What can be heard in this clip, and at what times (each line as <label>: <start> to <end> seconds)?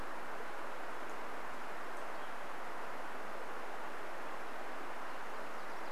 Nashville Warbler song: 4 to 6 seconds